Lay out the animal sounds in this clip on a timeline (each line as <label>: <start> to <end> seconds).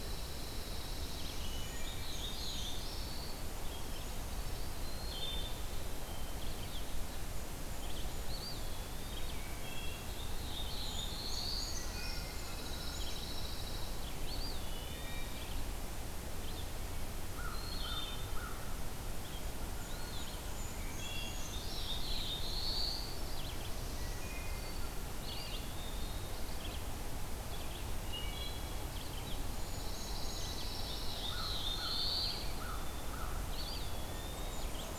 Red-eyed Vireo (Vireo olivaceus): 0.0 to 1.5 seconds
Pine Warbler (Setophaga pinus): 0.0 to 1.8 seconds
Wood Thrush (Hylocichla mustelina): 1.4 to 1.9 seconds
Black-throated Blue Warbler (Setophaga caerulescens): 1.5 to 3.5 seconds
Brown Creeper (Certhia americana): 2.1 to 3.4 seconds
Red-eyed Vireo (Vireo olivaceus): 3.6 to 35.0 seconds
Wood Thrush (Hylocichla mustelina): 4.7 to 6.1 seconds
Eastern Wood-Pewee (Contopus virens): 8.1 to 9.6 seconds
Wood Thrush (Hylocichla mustelina): 9.4 to 10.2 seconds
Black-throated Blue Warbler (Setophaga caerulescens): 9.9 to 11.9 seconds
Brown Creeper (Certhia americana): 10.9 to 13.2 seconds
Pine Warbler (Setophaga pinus): 11.5 to 14.3 seconds
Wood Thrush (Hylocichla mustelina): 11.7 to 12.6 seconds
Eastern Wood-Pewee (Contopus virens): 14.1 to 15.7 seconds
Wood Thrush (Hylocichla mustelina): 14.6 to 15.5 seconds
American Crow (Corvus brachyrhynchos): 17.1 to 19.3 seconds
Wood Thrush (Hylocichla mustelina): 17.5 to 18.7 seconds
Blackburnian Warbler (Setophaga fusca): 19.2 to 21.3 seconds
Eastern Wood-Pewee (Contopus virens): 19.8 to 20.6 seconds
Brown Creeper (Certhia americana): 20.6 to 22.1 seconds
Wood Thrush (Hylocichla mustelina): 20.6 to 21.7 seconds
Black-throated Blue Warbler (Setophaga caerulescens): 21.0 to 23.3 seconds
Wood Thrush (Hylocichla mustelina): 23.7 to 24.9 seconds
Eastern Wood-Pewee (Contopus virens): 25.0 to 26.6 seconds
Wood Thrush (Hylocichla mustelina): 28.0 to 29.1 seconds
Pine Warbler (Setophaga pinus): 29.4 to 31.8 seconds
Brown Creeper (Certhia americana): 29.9 to 31.2 seconds
Black-throated Blue Warbler (Setophaga caerulescens): 30.8 to 32.7 seconds
American Crow (Corvus brachyrhynchos): 31.0 to 33.8 seconds
Eastern Wood-Pewee (Contopus virens): 33.1 to 35.0 seconds
Blackburnian Warbler (Setophaga fusca): 33.9 to 35.0 seconds